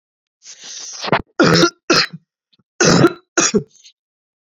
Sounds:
Cough